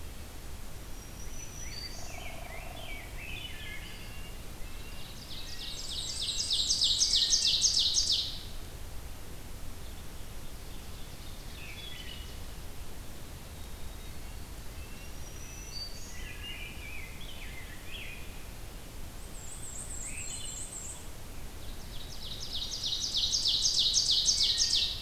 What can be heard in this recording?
Black-throated Green Warbler, Rose-breasted Grosbeak, Hairy Woodpecker, Wood Thrush, Red-breasted Nuthatch, Ovenbird, Black-and-white Warbler